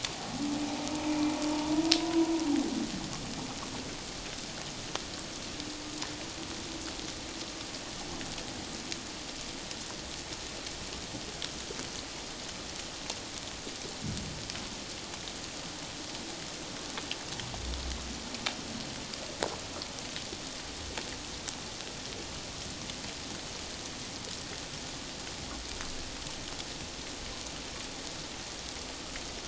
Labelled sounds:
1.1	1.3	humpback whale, 2.3 to 2.5 kHz
1.9	2.3	humpback whale, 0.94 to 1.1 kHz

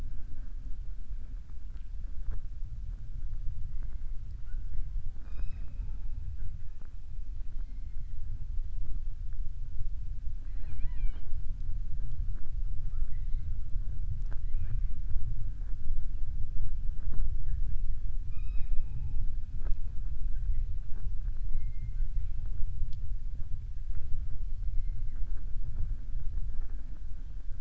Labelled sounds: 10.3	11.3	killer whale, southern resident, 0.28 to 4.5 kHz

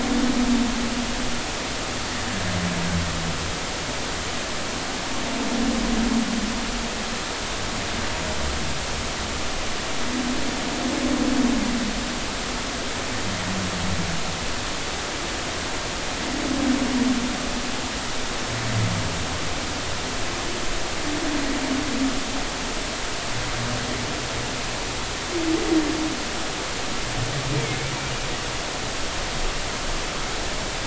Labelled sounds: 27.5	27.8	humpback whale, 2.1 to 2.4 kHz

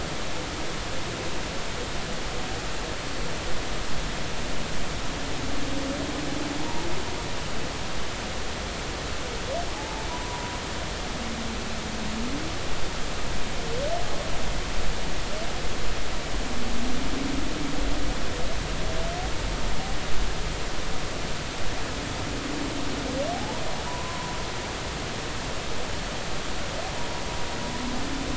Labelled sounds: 6.6	6.8	humpback whale, 0.80 to 0.99 kHz
9.7	10.4	humpback whale, 0.80 to 1.0 kHz
23.3	24.3	humpback whale, 0.80 to 1.1 kHz

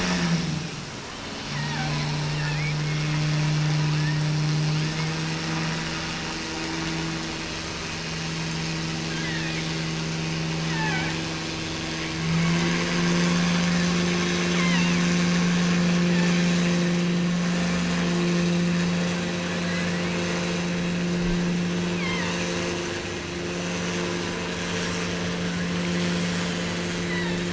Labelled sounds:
1.4	2.8	killer whale, offshore, 0.36 to 2.9 kHz
3.9	4.4	killer whale, offshore, 1.0 to 2.8 kHz
9.0	9.7	killer whale, offshore, 1.4 to 3.5 kHz
10.6	11.2	killer whale, offshore, 0.55 to 3.1 kHz
12.2	12.9	killer whale, offshore, 1.7 to 3.4 kHz
14.5	15.2	killer whale, offshore, 0.82 to 4.4 kHz
16.0	16.6	killer whale, offshore, 1.5 to 5.0 kHz
19.6	20.3	killer whale, offshore, 1.4 to 2.8 kHz
21.8	22.6	killer whale, offshore, 1.7 to 3.4 kHz
26.3	27.5	killer whale, offshore, 0.70 to 7.0 kHz

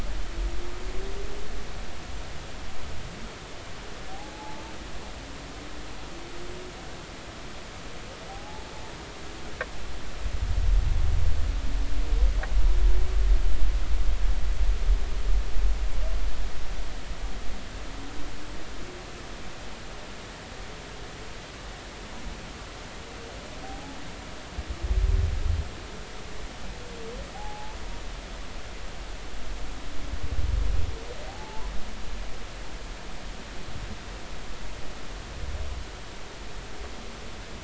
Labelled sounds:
4.1	4.6	humpback whale, 0.80 to 0.99 kHz
8.3	8.7	humpback whale, 0.80 to 0.93 kHz
23.6	24.0	humpback whale, 0.80 to 0.90 kHz
27.3	27.8	humpback whale, 0.80 to 0.93 kHz
31.3	31.7	humpback whale, 0.80 to 1.0 kHz

